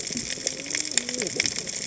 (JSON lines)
{"label": "biophony, cascading saw", "recorder": "HydroMoth"}